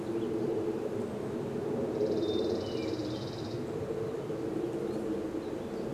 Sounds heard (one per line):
unidentified sound
airplane
Hermit Thrush song